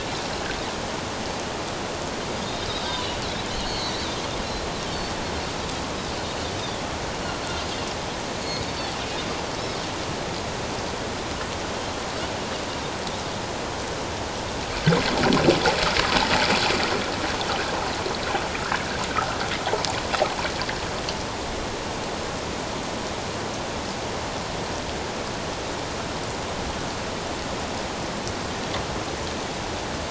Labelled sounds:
2.4	3.2	Pacific white-sided dolphin, 3.5 to 4.1 kHz
3.7	4.1	Pacific white-sided dolphin, 3.8 to 4.5 kHz
6.6	6.8	Pacific white-sided dolphin, 3.2 to 3.8 kHz
8.4	8.8	Pacific white-sided dolphin, 4.2 to 4.6 kHz

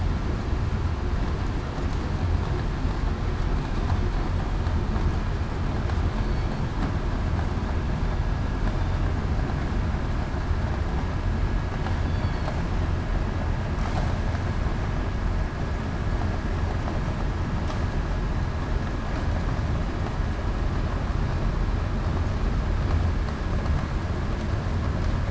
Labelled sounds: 6.2	6.5	killer whale, southern resident, 4.4 to 4.5 kHz
12.0	12.4	killer whale, southern resident, 3.3 to 3.5 kHz

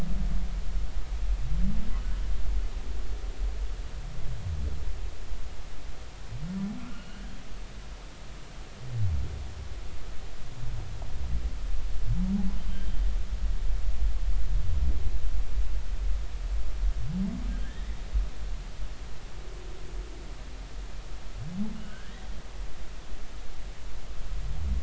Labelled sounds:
6.9	7.2	humpback whale, 2.8 to 3.0 kHz
12.7	13.0	humpback whale, 3.0 to 3.2 kHz
17.6	18.0	humpback whale, 1.5 to 2.1 kHz
21.8	22.3	humpback whale, 1.4 to 2.0 kHz

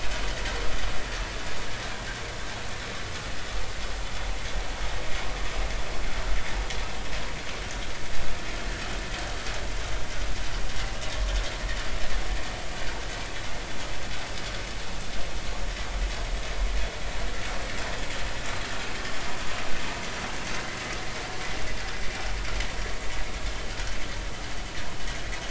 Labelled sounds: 23.7	24.0	vessel noise, 1.3 to 1.6 kHz

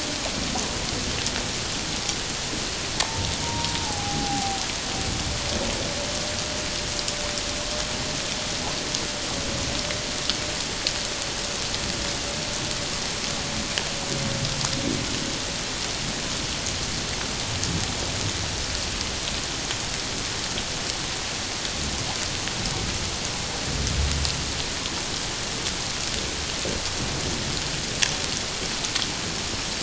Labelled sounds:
3.0	4.6	humpback whale, 0.78 to 1.1 kHz

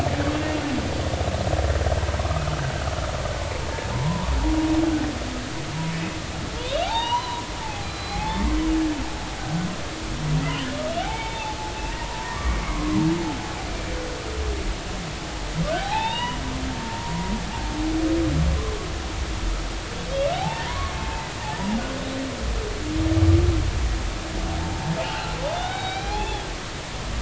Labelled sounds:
0.3	0.6	humpback whale, 2.7 to 2.8 kHz
2.2	2.5	humpback whale, 1.0 to 1.3 kHz
3.9	4.3	humpback whale, 0.83 to 1.1 kHz
6.6	8.5	humpback whale, 0.80 to 4.9 kHz
11.0	13.0	humpback whale, 0.80 to 3.7 kHz
15.7	16.4	humpback whale, 0.80 to 3.9 kHz
16.7	17.3	humpback whale, 0.86 to 1.1 kHz
20.3	21.3	humpback whale, 0.80 to 1.2 kHz
24.7	26.5	humpback whale, 0.80 to 4.0 kHz

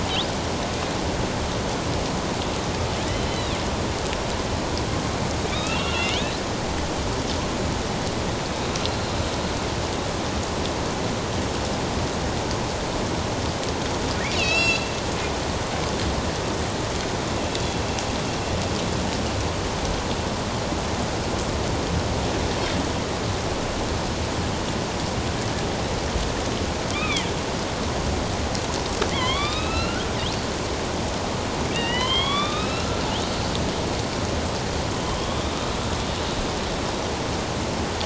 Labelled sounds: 3.1	3.6	killer whale, northern resident, A clan, AB subclan, 2.7 to 4.2 kHz
5.4	6.3	killer whale, northern resident, A clan, AB subclan, 1.1 to 3.8 kHz
8.8	9.1	killer whale, northern resident, A clan, AB subclan, 4.1 to 4.2 kHz
14.3	14.9	killer whale, northern resident, A clan, AB subclan, 2.5 to 6.8 kHz
26.9	27.3	killer whale, northern resident, A clan, AB subclan, 1.1 to 3.9 kHz
29.1	30.1	killer whale, northern resident, A clan, AB subclan, 0.97 to 4.9 kHz
31.7	33.0	killer whale, northern resident, A clan, AB subclan, 1.0 to 4.1 kHz
35.1	35.4	killer whale, northern resident, A clan, AB subclan, 3.0 to 3.5 kHz

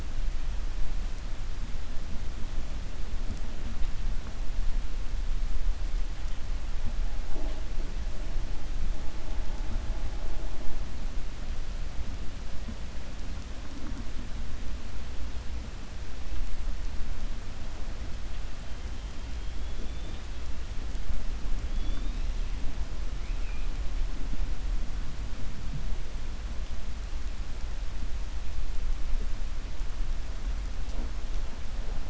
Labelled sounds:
23.1	23.7	killer whale, 1.5 to 2.7 kHz

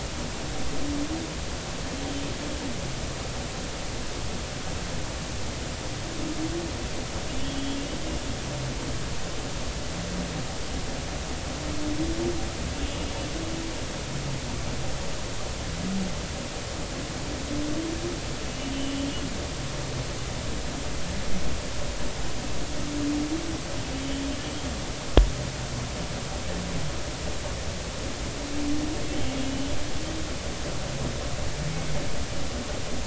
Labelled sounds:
12.8	13.1	humpback whale, 2.8 to 2.9 kHz
18.5	18.7	humpback whale, 2.8 to 3.0 kHz
29.4	29.7	humpback whale, 2.8 to 3.1 kHz

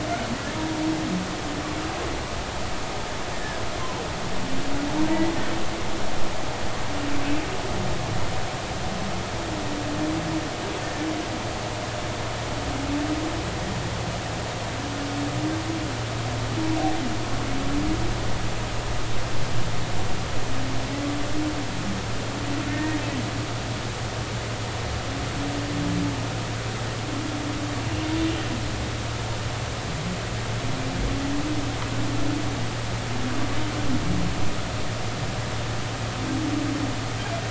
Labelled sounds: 3.3	3.6	humpback whale, 1.6 to 1.9 kHz
22.7	23.0	humpback whale, 1.8 to 1.9 kHz

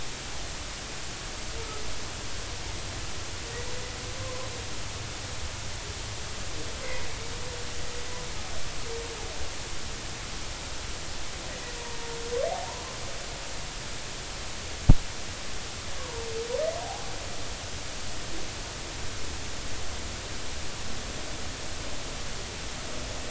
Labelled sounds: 6.8	7.1	humpback whale, 1.9 to 2.2 kHz
11.8	12.2	humpback whale, 0.90 to 1.0 kHz
12.5	12.8	humpback whale, 0.80 to 1.1 kHz
16.0	16.3	humpback whale, 0.86 to 1.2 kHz
16.8	17.1	humpback whale, 0.80 to 0.93 kHz

